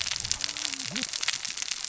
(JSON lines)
{"label": "biophony, cascading saw", "recorder": "SoundTrap 600 or HydroMoth"}